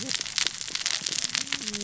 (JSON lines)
{"label": "biophony, cascading saw", "recorder": "SoundTrap 600 or HydroMoth"}